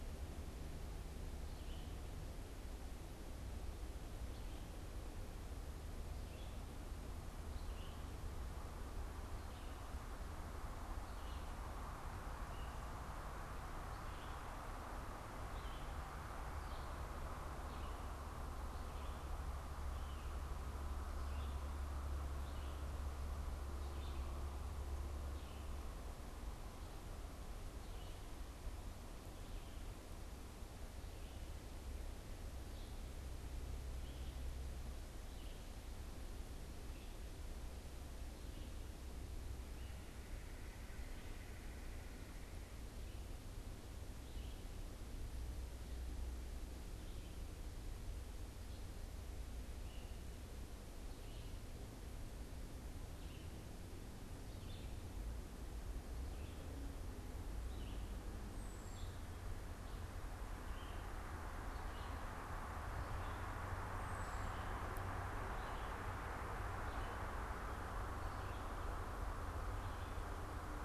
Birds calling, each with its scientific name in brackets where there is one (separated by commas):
Red-eyed Vireo (Vireo olivaceus), unidentified bird, Red-bellied Woodpecker (Melanerpes carolinus)